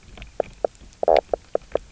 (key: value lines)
label: biophony, knock croak
recorder: SoundTrap 300